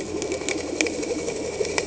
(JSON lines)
{"label": "anthrophony, boat engine", "recorder": "HydroMoth"}